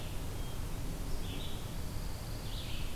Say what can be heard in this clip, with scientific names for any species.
Vireo olivaceus, Setophaga pinus